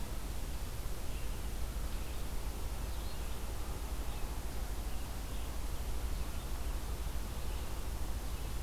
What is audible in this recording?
Red-eyed Vireo